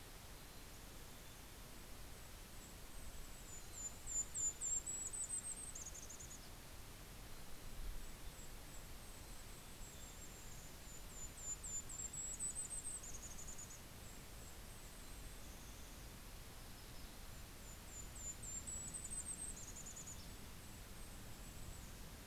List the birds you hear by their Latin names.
Poecile gambeli, Regulus satrapa, Setophaga coronata, Empidonax hammondii